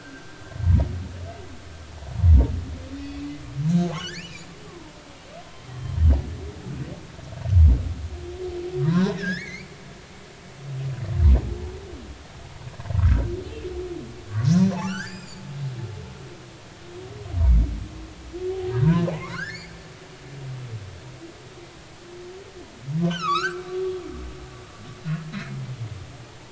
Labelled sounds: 3.9	4.9	humpback whale, 0.83 to 3.6 kHz
5.7	6.0	humpback whale, 3.0 to 3.2 kHz
8.9	9.7	humpback whale, 0.80 to 5.5 kHz
14.7	15.4	humpback whale, 0.80 to 7.6 kHz
18.7	19.7	humpback whale, 0.90 to 2.4 kHz
20.3	20.6	humpback whale, 3.8 to 5.4 kHz
23.1	24.5	humpback whale, 1.0 to 7.0 kHz

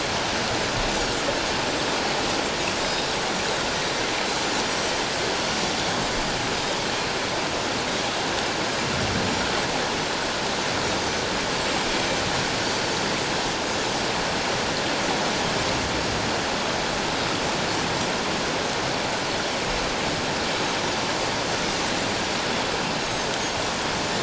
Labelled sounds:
2.8	3.1	Pacific white-sided dolphin, 3.7 to 5.1 kHz
11.6	11.9	Pacific white-sided dolphin, 7.2 to 7.6 kHz
12.6	12.9	Pacific white-sided dolphin, 4.5 to 4.7 kHz
23.0	23.3	Pacific white-sided dolphin, 6.2 to 6.6 kHz

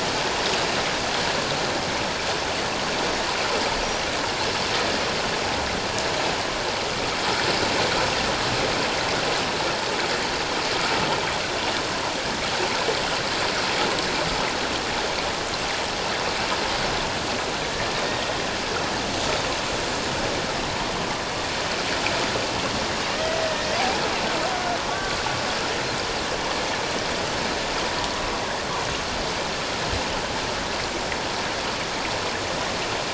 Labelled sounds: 23.5	23.8	killer whale, Bigg's (transient), 1.8 to 1.9 kHz
24.9	25.1	killer whale, Bigg's (transient), 1.1 to 1.2 kHz

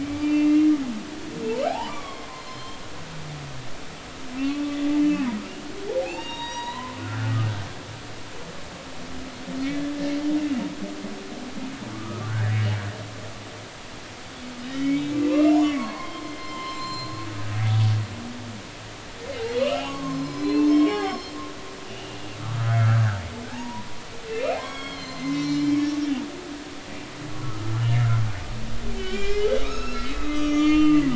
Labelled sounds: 0.0	0.7	humpback whale, 2.0 to 3.0 kHz
1.6	2.8	humpback whale, 0.80 to 4.3 kHz
5.0	5.3	humpback whale, 2.5 to 3.0 kHz
6.0	7.4	humpback whale, 0.80 to 6.8 kHz
9.7	9.9	humpback whale, 3.3 to 3.5 kHz
11.9	12.6	humpback whale, 1.1 to 2.0 kHz
14.7	17.3	humpback whale, 0.86 to 5.4 kHz
19.4	21.3	humpback whale, 0.80 to 6.5 kHz
21.9	22.2	humpback whale, 2.8 to 2.9 kHz
22.8	24.0	humpback whale, 0.80 to 1.8 kHz
24.3	25.8	humpback whale, 0.96 to 7.3 kHz
26.3	27.9	humpback whale, 1.1 to 5.5 kHz
29.0	31.1	humpback whale, 1.0 to 7.1 kHz

